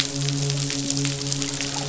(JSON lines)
{"label": "biophony, midshipman", "recorder": "SoundTrap 500"}